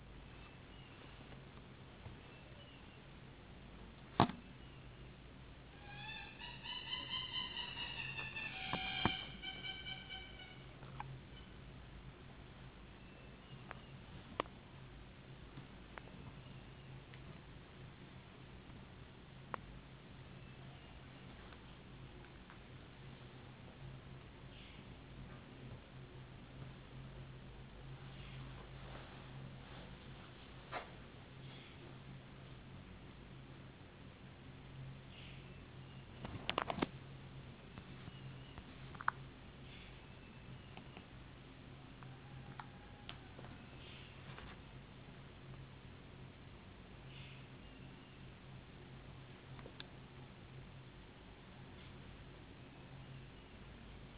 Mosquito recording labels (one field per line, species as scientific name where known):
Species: no mosquito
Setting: insect culture